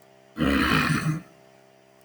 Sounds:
Throat clearing